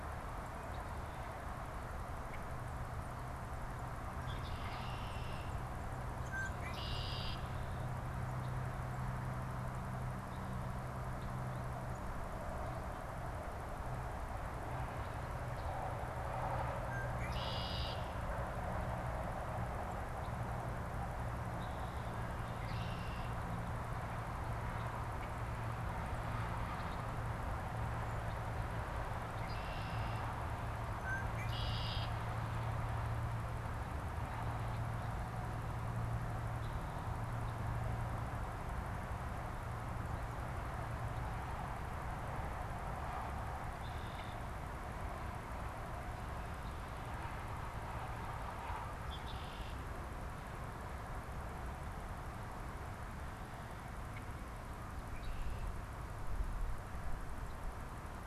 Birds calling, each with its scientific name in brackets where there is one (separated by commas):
unidentified bird, Red-winged Blackbird (Agelaius phoeniceus)